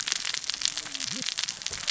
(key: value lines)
label: biophony, cascading saw
recorder: SoundTrap 600 or HydroMoth